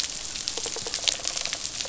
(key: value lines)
label: biophony, rattle response
recorder: SoundTrap 500